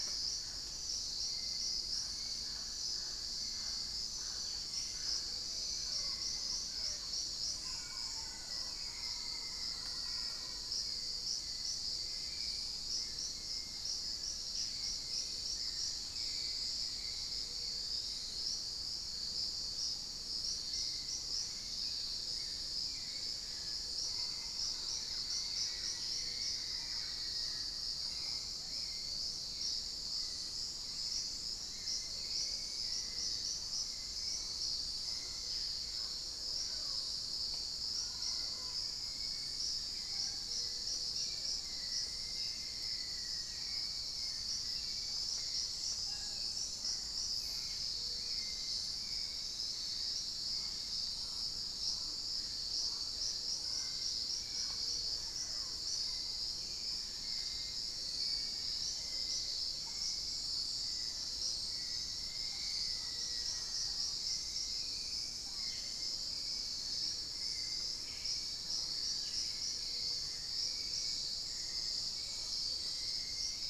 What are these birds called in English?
Mealy Parrot, Hauxwell's Thrush, unidentified bird, Black-faced Antthrush, Thrush-like Wren, Plumbeous Pigeon, Fasciated Antshrike, Spot-winged Antshrike